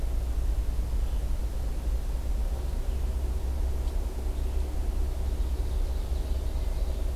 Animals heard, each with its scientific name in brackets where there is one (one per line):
Ovenbird (Seiurus aurocapilla)
Red-eyed Vireo (Vireo olivaceus)